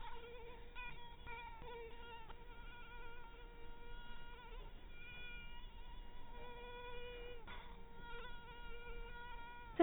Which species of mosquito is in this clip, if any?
mosquito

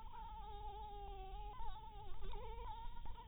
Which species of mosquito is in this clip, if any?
Anopheles dirus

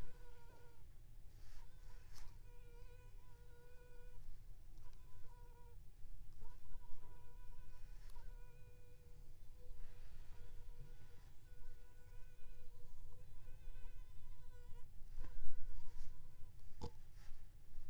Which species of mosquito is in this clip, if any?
Aedes aegypti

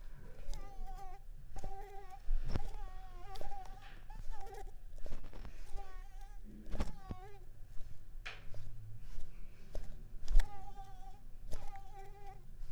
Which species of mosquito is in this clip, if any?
Mansonia uniformis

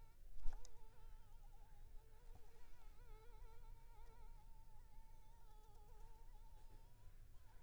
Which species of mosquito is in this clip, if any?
Anopheles funestus s.s.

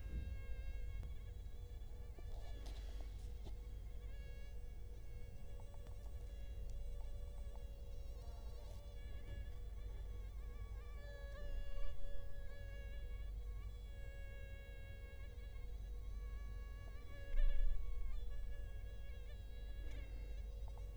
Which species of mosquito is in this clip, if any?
Culex quinquefasciatus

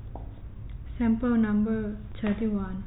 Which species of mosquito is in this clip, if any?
no mosquito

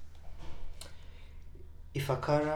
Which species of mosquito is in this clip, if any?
Anopheles arabiensis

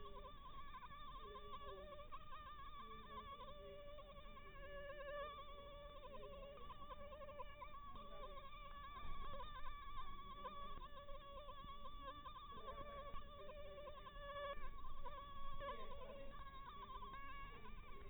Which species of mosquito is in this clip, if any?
Anopheles maculatus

